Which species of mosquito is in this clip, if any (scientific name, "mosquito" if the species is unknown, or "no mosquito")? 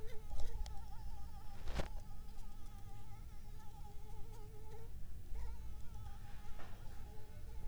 Anopheles arabiensis